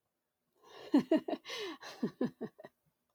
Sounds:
Laughter